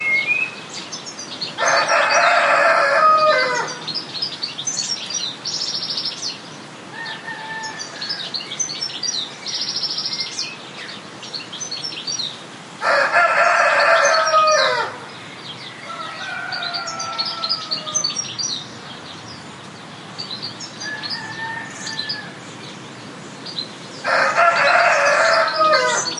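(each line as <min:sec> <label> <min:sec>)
0:00.0 Multiple birds chirp at a moderate volume. 0:26.2
0:01.3 A rooster crows loudly. 0:04.0
0:07.1 A rooster calls at a moderate volume in the distance. 0:08.7
0:12.6 A rooster crows loudly. 0:15.0
0:15.9 A rooster calls at a moderate volume in the distance. 0:18.7
0:20.4 A rooster calls at a moderate volume in the distance. 0:22.5
0:24.0 A rooster crows loudly. 0:26.2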